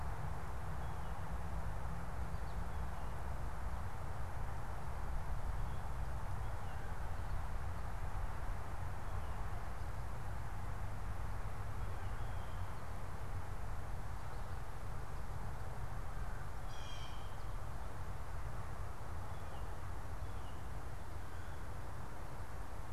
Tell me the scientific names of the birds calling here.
Cyanocitta cristata